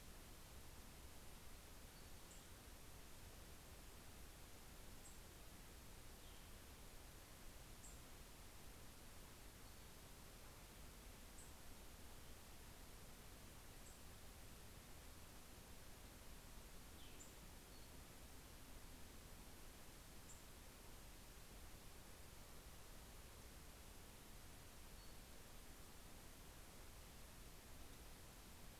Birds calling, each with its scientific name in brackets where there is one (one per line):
Cassin's Vireo (Vireo cassinii)
Nashville Warbler (Leiothlypis ruficapilla)